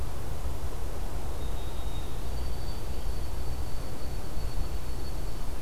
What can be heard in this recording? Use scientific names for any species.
Zonotrichia albicollis